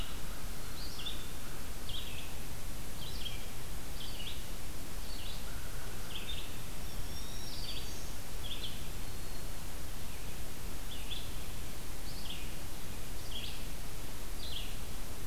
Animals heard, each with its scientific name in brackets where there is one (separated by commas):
Black-throated Green Warbler (Setophaga virens), Eastern Wood-Pewee (Contopus virens), Red-eyed Vireo (Vireo olivaceus), American Crow (Corvus brachyrhynchos)